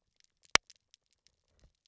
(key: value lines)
label: biophony, knock croak
recorder: SoundTrap 300